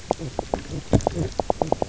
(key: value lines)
label: biophony, knock croak
recorder: SoundTrap 300